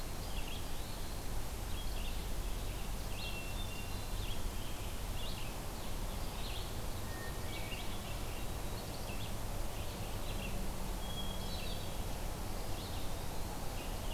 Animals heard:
Hermit Thrush (Catharus guttatus), Eastern Wood-Pewee (Contopus virens), Red-eyed Vireo (Vireo olivaceus)

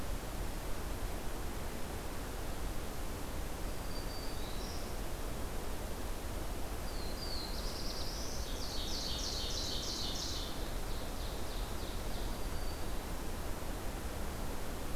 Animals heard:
Black-throated Blue Warbler (Setophaga caerulescens), Black-throated Green Warbler (Setophaga virens), Ovenbird (Seiurus aurocapilla)

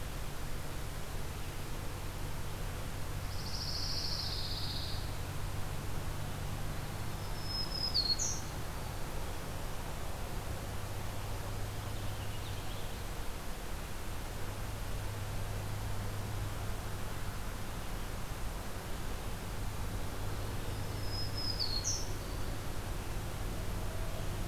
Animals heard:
Black-throated Green Warbler (Setophaga virens), Purple Finch (Haemorhous purpureus), Pine Warbler (Setophaga pinus)

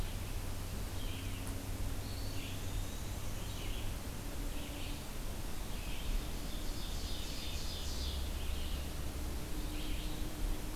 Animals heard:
Eastern Wood-Pewee (Contopus virens), Black-and-white Warbler (Mniotilta varia), Ovenbird (Seiurus aurocapilla), Red-eyed Vireo (Vireo olivaceus)

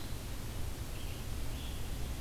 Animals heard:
Red-eyed Vireo (Vireo olivaceus)

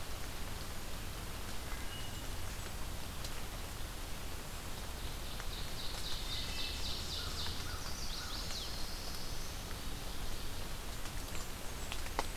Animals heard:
Chestnut-sided Warbler (Setophaga pensylvanica), Ovenbird (Seiurus aurocapilla), Wood Thrush (Hylocichla mustelina), Black-throated Blue Warbler (Setophaga caerulescens), Blackburnian Warbler (Setophaga fusca), American Crow (Corvus brachyrhynchos)

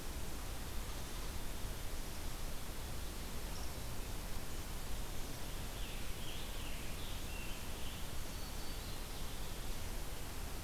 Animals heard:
Black-throated Green Warbler (Setophaga virens), Scarlet Tanager (Piranga olivacea)

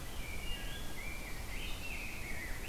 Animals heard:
Rose-breasted Grosbeak (Pheucticus ludovicianus), Wood Thrush (Hylocichla mustelina)

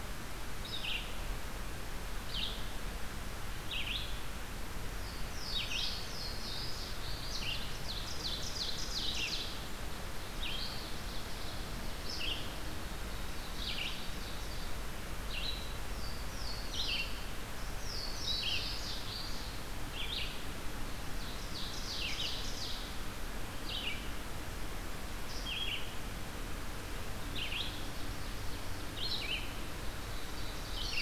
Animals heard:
Ovenbird (Seiurus aurocapilla), Red-eyed Vireo (Vireo olivaceus), Louisiana Waterthrush (Parkesia motacilla)

